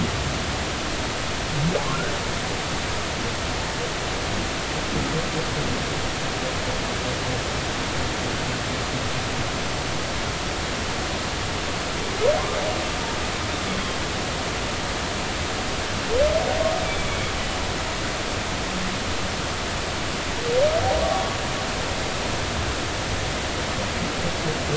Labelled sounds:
1.8	2.1	humpback whale, 0.99 to 1.6 kHz
18.1	18.3	humpback whale, 2.1 to 2.3 kHz

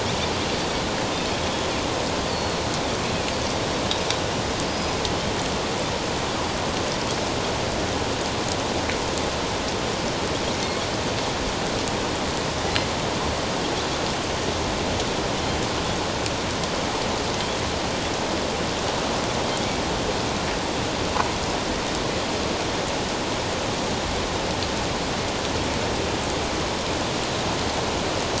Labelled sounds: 2.3	3.6	Pacific white-sided dolphin, 4.2 to 4.7 kHz
4.7	4.9	Pacific white-sided dolphin, 4.9 to 5.1 kHz

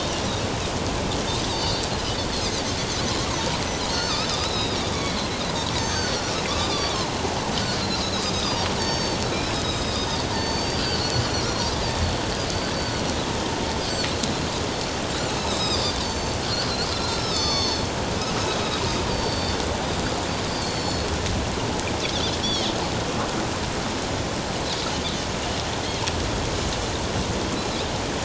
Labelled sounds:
1.5	1.9	Pacific white-sided dolphin, 3.5 to 4.8 kHz
3.8	5.2	Pacific white-sided dolphin, 1.2 to 6.6 kHz
5.8	7.1	Pacific white-sided dolphin, 1.4 to 6.4 kHz
8.3	9.2	Pacific white-sided dolphin, 4.5 to 6.5 kHz
9.5	11.2	Pacific white-sided dolphin, 3.5 to 6.5 kHz
15.4	17.9	Pacific white-sided dolphin, 0.88 to 7.3 kHz
18.4	19.6	Pacific white-sided dolphin, 3.5 to 4.8 kHz
20.5	21.1	Pacific white-sided dolphin, 4.2 to 7.2 kHz
22.4	22.7	Pacific white-sided dolphin, 3.0 to 3.5 kHz

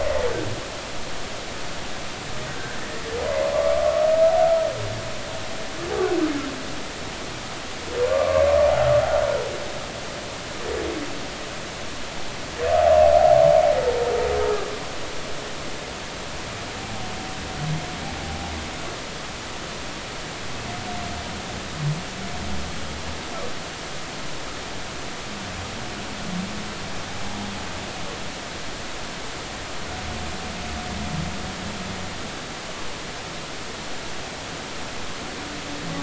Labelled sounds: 3.5	3.9	humpback whale, 0.99 to 1.3 kHz
8.1	8.5	humpback whale, 1.0 to 1.2 kHz

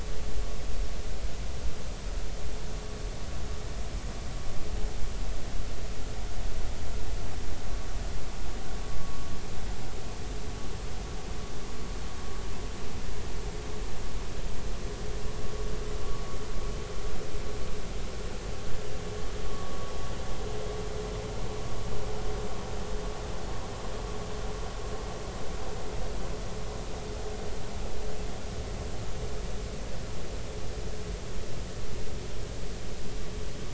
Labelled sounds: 9.0	9.3	vessel noise, 1.0 to 1.2 kHz
19.5	19.8	vessel noise, 1.0 to 1.2 kHz

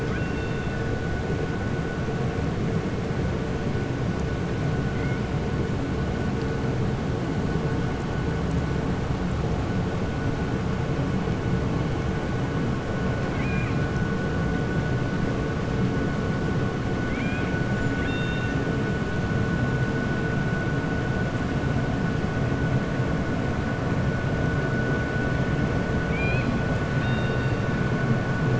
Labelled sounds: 0.0	0.8	killer whale, 1.3 to 5.5 kHz
13.2	13.8	killer whale, 1.2 to 2.9 kHz
17.0	17.5	killer whale, 1.6 to 3.8 kHz
17.9	18.6	killer whale, 1.6 to 3.7 kHz
26.9	27.6	killer whale, 1.8 to 4.7 kHz

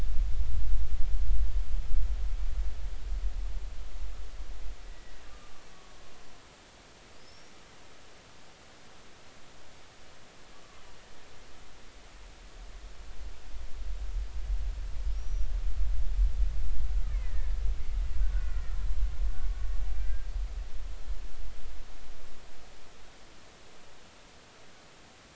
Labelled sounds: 4.9	6.0	killer whale, Bigg's (transient), 1.1 to 2.0 kHz
7.1	7.5	killer whale, Bigg's (transient), 4.7 to 5.8 kHz
15.1	15.5	killer whale, Bigg's (transient), 5.5 to 5.9 kHz
17.1	18.8	killer whale, Bigg's (transient), 1.3 to 2.4 kHz
20.0	20.3	killer whale, Bigg's (transient), 1.5 to 1.7 kHz

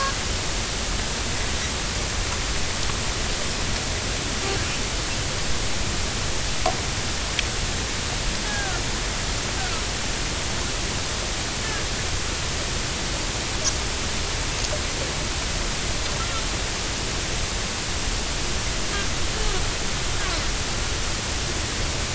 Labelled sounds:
8.4	8.8	Risso's dolphin, 0.80 to 1.7 kHz
9.6	9.8	Risso's dolphin, 1.2 to 1.6 kHz

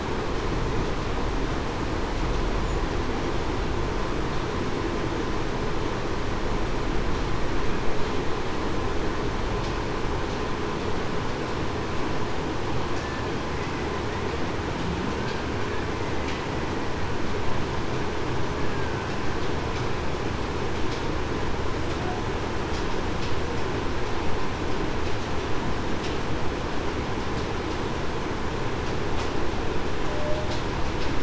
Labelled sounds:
18.7	19.1	killer whale, Bigg's (transient), 1.5 to 1.6 kHz
30.1	30.5	humpback whale, 0.58 to 0.63 kHz

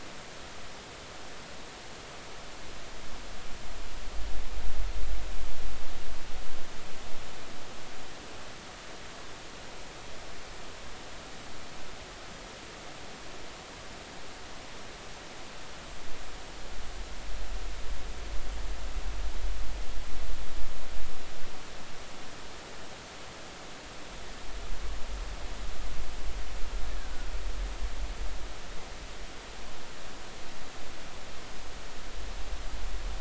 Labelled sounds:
27.0	27.3	killer whale, Bigg's (transient), 1.4 to 1.7 kHz

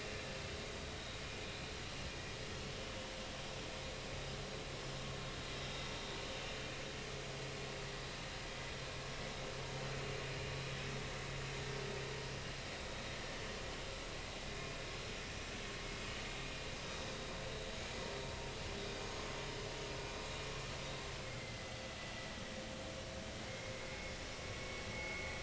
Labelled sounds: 4.7	5.0	vessel noise, 5.0 to 5.3 kHz
15.4	15.8	vessel noise, 2.4 to 2.6 kHz
19.0	19.3	vessel noise, 6.4 to 6.6 kHz
21.4	21.7	vessel noise, 2.0 to 2.1 kHz
23.5	24.1	vessel noise, 2.0 to 2.2 kHz
24.9	25.3	vessel noise, 2.0 to 2.3 kHz

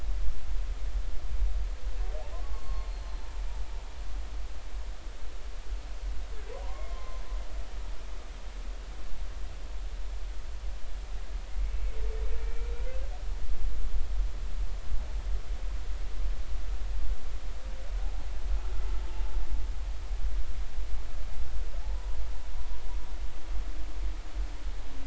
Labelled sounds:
2.4	3.3	humpback whale, 1.0 to 4.4 kHz
6.6	7.2	humpback whale, 0.90 to 2.2 kHz
12.4	12.7	humpback whale, 2.2 to 2.4 kHz

